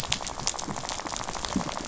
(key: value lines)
label: biophony, rattle
recorder: SoundTrap 500